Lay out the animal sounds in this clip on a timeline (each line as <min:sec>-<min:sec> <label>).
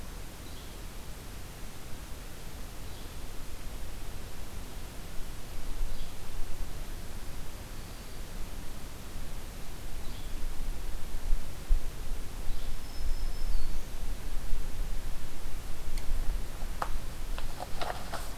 0:00.4-0:00.8 Yellow-bellied Flycatcher (Empidonax flaviventris)
0:02.8-0:03.1 Yellow-bellied Flycatcher (Empidonax flaviventris)
0:05.9-0:06.2 Yellow-bellied Flycatcher (Empidonax flaviventris)
0:07.7-0:08.2 Black-throated Green Warbler (Setophaga virens)
0:10.0-0:10.2 Yellow-bellied Flycatcher (Empidonax flaviventris)
0:12.5-0:12.7 Yellow-bellied Flycatcher (Empidonax flaviventris)
0:12.7-0:14.0 Black-throated Green Warbler (Setophaga virens)